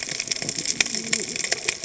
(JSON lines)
{"label": "biophony, cascading saw", "recorder": "HydroMoth"}